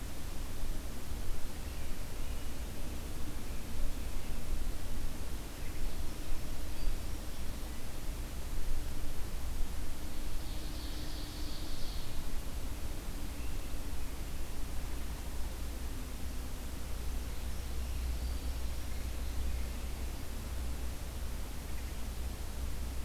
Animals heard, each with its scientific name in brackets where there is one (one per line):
Ovenbird (Seiurus aurocapilla)